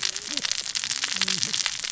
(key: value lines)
label: biophony, cascading saw
recorder: SoundTrap 600 or HydroMoth